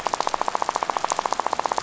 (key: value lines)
label: biophony, rattle
recorder: SoundTrap 500